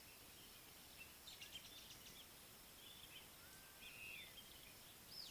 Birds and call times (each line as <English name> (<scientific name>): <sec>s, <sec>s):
Speckled Mousebird (Colius striatus): 1.6s
Violet-backed Starling (Cinnyricinclus leucogaster): 4.1s